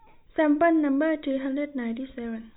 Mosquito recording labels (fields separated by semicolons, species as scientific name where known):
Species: no mosquito; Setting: cup